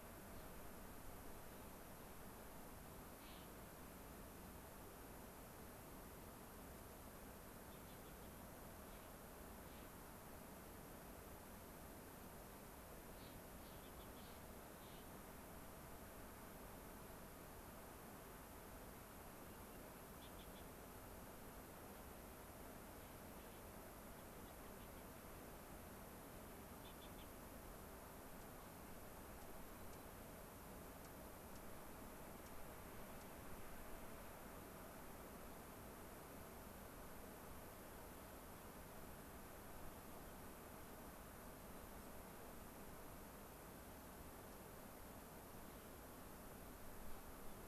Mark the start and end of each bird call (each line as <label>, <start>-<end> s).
Clark's Nutcracker (Nucifraga columbiana), 3.1-3.6 s
Gray-crowned Rosy-Finch (Leucosticte tephrocotis), 7.6-8.4 s
Clark's Nutcracker (Nucifraga columbiana), 8.8-9.2 s
Clark's Nutcracker (Nucifraga columbiana), 9.6-10.0 s
Clark's Nutcracker (Nucifraga columbiana), 13.1-13.9 s
Gray-crowned Rosy-Finch (Leucosticte tephrocotis), 13.8-14.3 s
Clark's Nutcracker (Nucifraga columbiana), 14.2-15.1 s
Gray-crowned Rosy-Finch (Leucosticte tephrocotis), 20.1-20.8 s
Gray-crowned Rosy-Finch (Leucosticte tephrocotis), 24.1-25.4 s
Gray-crowned Rosy-Finch (Leucosticte tephrocotis), 26.8-27.4 s
Dark-eyed Junco (Junco hyemalis), 28.3-28.6 s
Dark-eyed Junco (Junco hyemalis), 29.4-29.5 s
Dark-eyed Junco (Junco hyemalis), 29.9-30.0 s
Dark-eyed Junco (Junco hyemalis), 31.0-31.2 s
Dark-eyed Junco (Junco hyemalis), 31.5-31.7 s
Dark-eyed Junco (Junco hyemalis), 32.4-32.6 s
Dark-eyed Junco (Junco hyemalis), 33.1-33.4 s